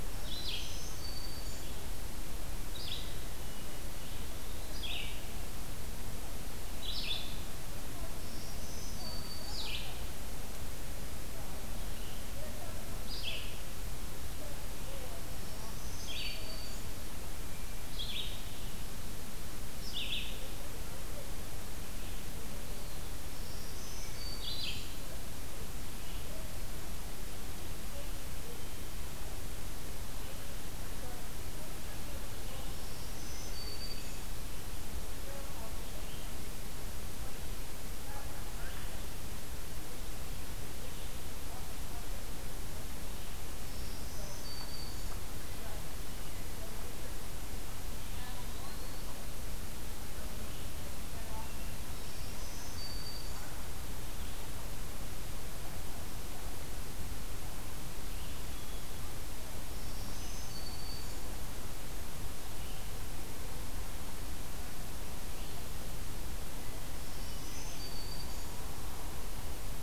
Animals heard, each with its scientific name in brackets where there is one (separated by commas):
Red-eyed Vireo (Vireo olivaceus), Hermit Thrush (Catharus guttatus), Eastern Wood-Pewee (Contopus virens), Black-throated Green Warbler (Setophaga virens)